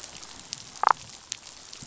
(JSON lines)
{"label": "biophony, damselfish", "recorder": "SoundTrap 500"}